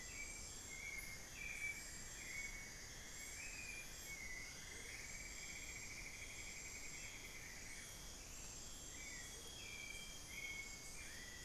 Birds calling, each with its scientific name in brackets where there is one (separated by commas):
Cinnamon-throated Woodcreeper (Dendrexetastes rufigula), Amazonian Grosbeak (Cyanoloxia rothschildii), Amazonian Motmot (Momotus momota), Hauxwell's Thrush (Turdus hauxwelli)